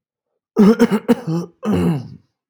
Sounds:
Throat clearing